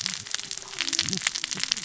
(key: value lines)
label: biophony, cascading saw
recorder: SoundTrap 600 or HydroMoth